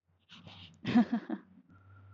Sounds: Laughter